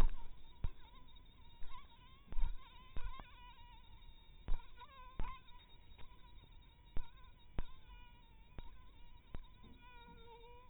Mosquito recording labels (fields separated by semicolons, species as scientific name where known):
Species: mosquito; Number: one; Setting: cup